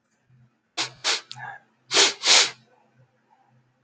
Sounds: Sniff